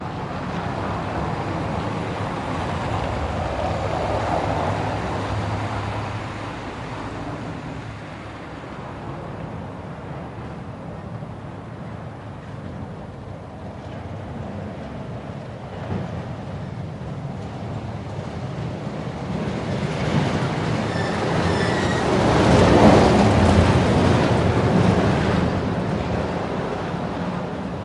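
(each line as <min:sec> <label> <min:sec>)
0:00.0 Soft, consistent ambient traffic noise with occasional cars passing. 0:19.5
0:19.2 A truck passes by, producing metallic rattling and rusty creaking sounds. 0:27.8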